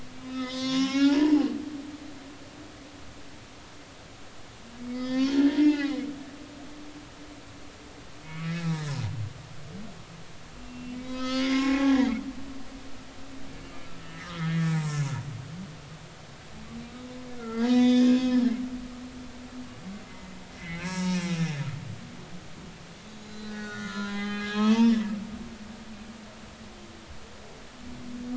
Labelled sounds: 0.2	1.5	humpback whale, 0.80 to 5.9 kHz
4.9	6.0	humpback whale, 0.80 to 5.0 kHz
8.2	8.7	humpback whale, 1.6 to 2.7 kHz
10.6	12.2	humpback whale, 0.99 to 6.8 kHz
14.0	14.9	humpback whale, 0.86 to 5.5 kHz
15.4	15.7	humpback whale, 1.7 to 2.2 kHz
17.4	18.7	humpback whale, 0.90 to 6.3 kHz
20.6	21.5	humpback whale, 0.80 to 5.5 kHz
23.2	25.0	humpback whale, 0.80 to 4.2 kHz

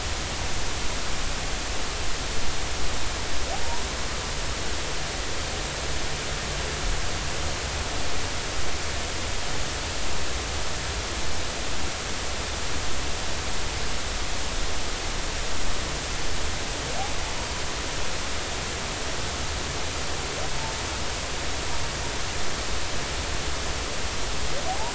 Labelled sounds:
24.7	24.9	humpback whale, 0.80 to 1.1 kHz

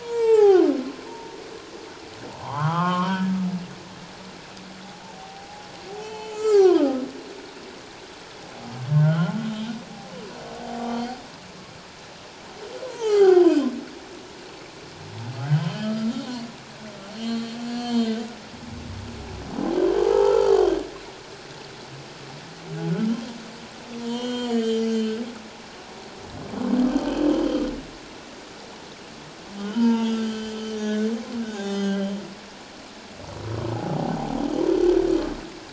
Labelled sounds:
0.0	0.7	humpback whale, 0.78 to 2.8 kHz
1.1	1.4	humpback whale, 0.88 to 0.97 kHz
2.4	3.3	humpback whale, 0.78 to 3.3 kHz
5.1	7.0	humpback whale, 0.78 to 7.6 kHz
8.9	9.7	humpback whale, 1.2 to 3.8 kHz
10.8	11.0	humpback whale, 1.1 to 1.2 kHz
12.8	13.6	humpback whale, 0.78 to 4.7 kHz
15.4	16.2	humpback whale, 1.2 to 3.3 kHz
17.1	18.2	humpback whale, 1.6 to 4.6 kHz
20.0	20.5	humpback whale, 0.78 to 1.4 kHz
24.0	25.2	humpback whale, 0.91 to 7.5 kHz
29.6	31.1	humpback whale, 0.84 to 6.0 kHz
31.5	32.1	humpback whale, 0.78 to 4.2 kHz

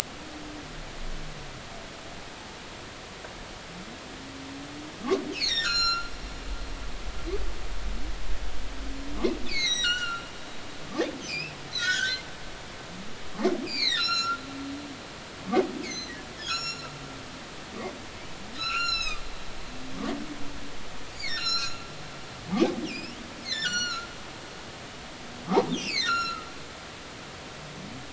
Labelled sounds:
5.3	6.1	humpback whale, 1.1 to 8.0 kHz
9.5	10.3	humpback whale, 1.2 to 7.8 kHz
11.0	12.2	humpback whale, 1.3 to 5.8 kHz
13.6	14.4	humpback whale, 1.3 to 5.9 kHz
15.0	16.9	humpback whale, 1.3 to 8.0 kHz
18.5	19.2	humpback whale, 1.2 to 8.0 kHz
21.2	21.8	humpback whale, 1.3 to 8.0 kHz
22.9	24.1	humpback whale, 1.3 to 7.3 kHz
25.7	26.5	humpback whale, 1.2 to 8.0 kHz
27.0	27.3	humpback whale, 5.2 to 5.8 kHz

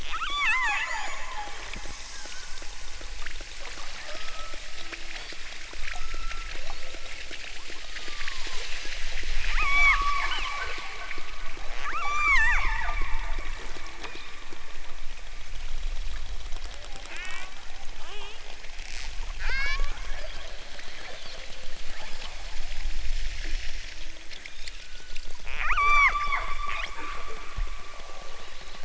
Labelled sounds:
0.1	1.6	killer whale, southern Alaska resident, 0.28 to 8.0 kHz
3.9	4.6	killer whale, southern Alaska resident, 0.32 to 1.9 kHz
4.9	5.4	killer whale, southern Alaska resident, 1.2 to 5.2 kHz
5.9	7.4	killer whale, southern Alaska resident, 0.46 to 6.8 kHz
7.7	8.6	killer whale, southern Alaska resident, 0.41 to 1.4 kHz
9.4	10.0	killer whale, southern Alaska resident, 0.60 to 8.0 kHz
11.7	13.3	killer whale, southern Alaska resident, 0.51 to 8.0 kHz
13.9	14.6	killer whale, southern Alaska resident, 0.51 to 4.0 kHz
17.0	17.6	killer whale, southern Alaska resident, 0.41 to 4.0 kHz
18.0	18.4	killer whale, southern Alaska resident, 0.23 to 4.3 kHz
19.3	20.4	killer whale, southern Alaska resident, 0.69 to 7.3 kHz
21.0	21.4	killer whale, southern Alaska resident, 2.7 to 5.0 kHz
21.9	22.3	killer whale, southern Alaska resident, 2.8 to 5.7 kHz
24.3	24.7	killer whale, southern Alaska resident, 1.3 to 5.9 kHz
25.5	27.0	killer whale, southern Alaska resident, 0.51 to 8.0 kHz
28.2	28.8	killer whale, southern Alaska resident, 2.2 to 5.6 kHz

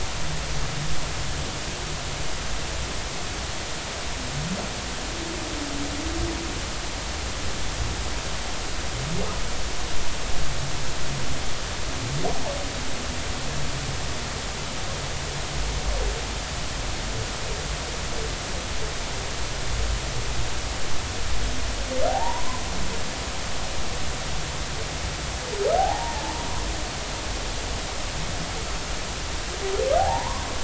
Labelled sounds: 22.1	22.6	humpback whale, 0.80 to 1.1 kHz
25.8	26.2	humpback whale, 0.80 to 0.99 kHz
30.0	30.5	humpback whale, 0.80 to 1.2 kHz

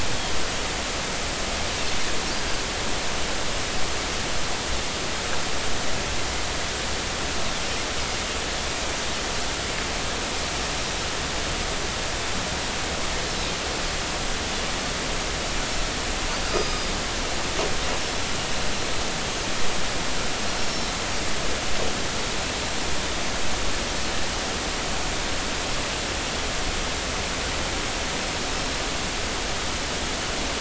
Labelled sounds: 16.5	16.9	Pacific white-sided dolphin, 1.2 to 5.0 kHz
18.0	18.2	Pacific white-sided dolphin, 5.3 to 5.5 kHz
20.6	20.9	Pacific white-sided dolphin, 5.3 to 5.6 kHz

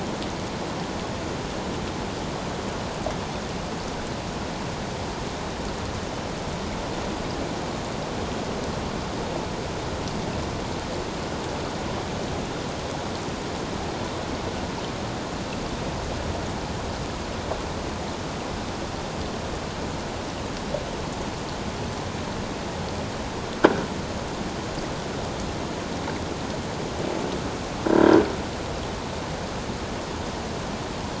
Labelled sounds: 27.9	28.2	croaking sound likely from a nearby submerged object, 1.6 to 1.7 kHz

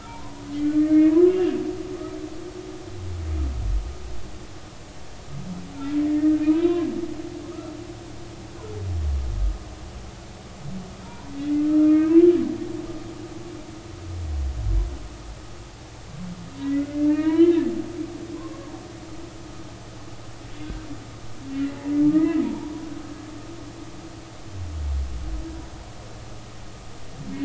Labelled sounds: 0.1	0.4	humpback whale, 0.86 to 1.1 kHz
0.8	1.6	humpback whale, 2.1 to 2.9 kHz
6.0	6.9	humpback whale, 0.93 to 3.9 kHz
7.4	7.7	humpback whale, 1.0 to 1.4 kHz
11.8	12.3	humpback whale, 1.2 to 2.4 kHz
16.6	17.7	humpback whale, 1.5 to 3.1 kHz
18.3	18.7	humpback whale, 0.99 to 1.2 kHz
21.5	22.7	humpback whale, 0.83 to 2.1 kHz

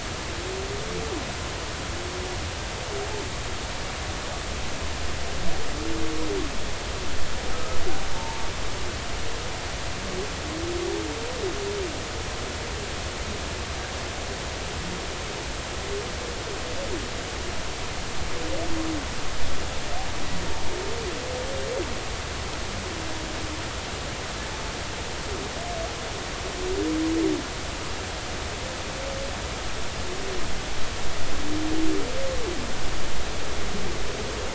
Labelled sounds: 7.5	8.5	humpback whale, 0.83 to 1.3 kHz

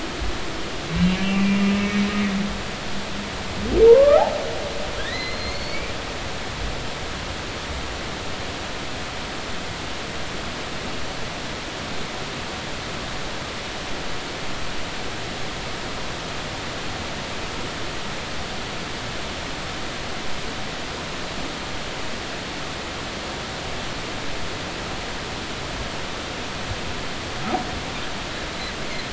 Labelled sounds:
1.1	2.1	humpback whale, 2.2 to 2.8 kHz
3.9	4.2	humpback whale, 0.86 to 1.4 kHz
5.0	5.9	humpback whale, 1.5 to 4.5 kHz

